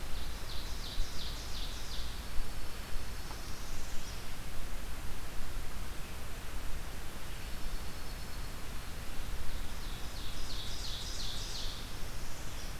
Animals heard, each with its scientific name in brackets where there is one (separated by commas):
Dark-eyed Junco (Junco hyemalis), Northern Parula (Setophaga americana), Ovenbird (Seiurus aurocapilla)